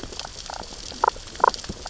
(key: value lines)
label: biophony, damselfish
recorder: SoundTrap 600 or HydroMoth